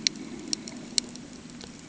{"label": "ambient", "recorder": "HydroMoth"}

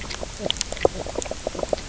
{"label": "biophony, knock croak", "recorder": "SoundTrap 300"}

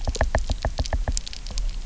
{"label": "biophony, knock", "recorder": "SoundTrap 300"}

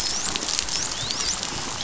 {"label": "biophony, dolphin", "recorder": "SoundTrap 500"}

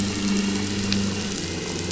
{"label": "anthrophony, boat engine", "recorder": "SoundTrap 500"}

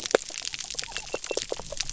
{"label": "biophony", "recorder": "SoundTrap 300"}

